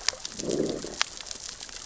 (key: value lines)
label: biophony, growl
recorder: SoundTrap 600 or HydroMoth